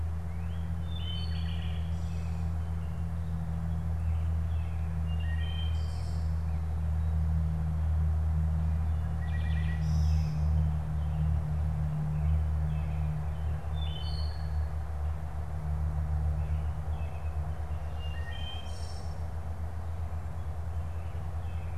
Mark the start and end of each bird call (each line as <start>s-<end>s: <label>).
0.0s-1.8s: Northern Cardinal (Cardinalis cardinalis)
0.7s-2.4s: Wood Thrush (Hylocichla mustelina)
3.7s-5.0s: Northern Cardinal (Cardinalis cardinalis)
5.0s-6.4s: Wood Thrush (Hylocichla mustelina)
8.8s-10.6s: Wood Thrush (Hylocichla mustelina)
10.8s-17.7s: American Robin (Turdus migratorius)
13.4s-14.9s: Wood Thrush (Hylocichla mustelina)
17.7s-19.1s: Wood Thrush (Hylocichla mustelina)